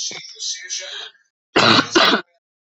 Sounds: Cough